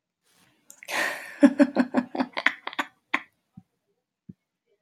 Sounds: Laughter